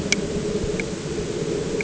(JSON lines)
{"label": "anthrophony, boat engine", "recorder": "HydroMoth"}